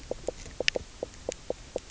{"label": "biophony, knock croak", "recorder": "SoundTrap 300"}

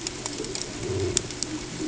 {"label": "ambient", "recorder": "HydroMoth"}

